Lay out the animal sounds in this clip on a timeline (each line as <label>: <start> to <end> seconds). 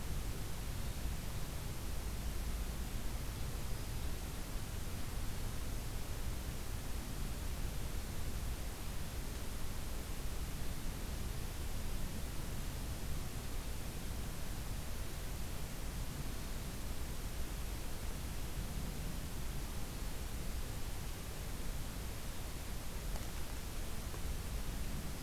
Black-throated Green Warbler (Setophaga virens): 3.5 to 4.1 seconds